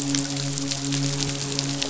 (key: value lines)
label: biophony, midshipman
recorder: SoundTrap 500